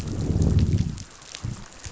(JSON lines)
{"label": "biophony, growl", "recorder": "SoundTrap 500"}